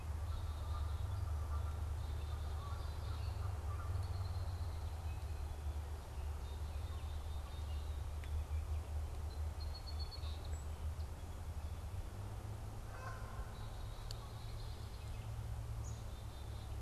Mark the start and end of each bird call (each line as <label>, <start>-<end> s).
Canada Goose (Branta canadensis), 0.0-4.3 s
Black-capped Chickadee (Poecile atricapillus), 0.1-3.5 s
Red-winged Blackbird (Agelaius phoeniceus), 3.8-5.0 s
Black-capped Chickadee (Poecile atricapillus), 6.2-8.1 s
Song Sparrow (Melospiza melodia), 9.1-11.3 s
Canada Goose (Branta canadensis), 12.5-14.3 s
Black-capped Chickadee (Poecile atricapillus), 13.5-16.8 s
Red-winged Blackbird (Agelaius phoeniceus), 14.2-15.3 s